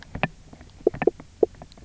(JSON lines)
{"label": "biophony, knock croak", "recorder": "SoundTrap 300"}